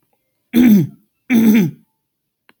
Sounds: Throat clearing